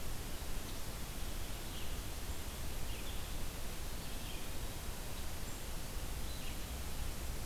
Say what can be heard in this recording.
Red-eyed Vireo